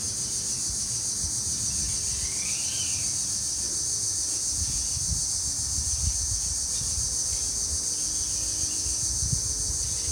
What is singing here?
Neotibicen linnei, a cicada